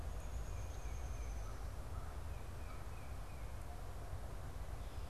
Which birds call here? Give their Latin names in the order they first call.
Dryobates pubescens, Corvus brachyrhynchos, Baeolophus bicolor